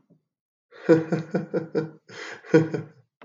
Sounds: Laughter